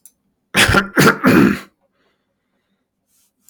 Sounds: Throat clearing